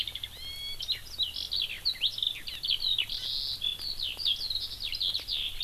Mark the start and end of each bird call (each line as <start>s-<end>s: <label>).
0.0s-5.6s: Eurasian Skylark (Alauda arvensis)